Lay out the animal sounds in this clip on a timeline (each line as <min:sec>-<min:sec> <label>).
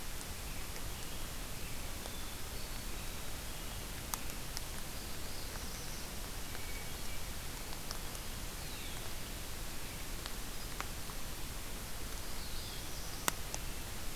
0:00.0-0:02.2 American Robin (Turdus migratorius)
0:01.8-0:03.0 Hermit Thrush (Catharus guttatus)
0:04.5-0:06.2 Black-throated Blue Warbler (Setophaga caerulescens)
0:06.4-0:07.3 Hermit Thrush (Catharus guttatus)
0:12.1-0:13.3 Black-throated Blue Warbler (Setophaga caerulescens)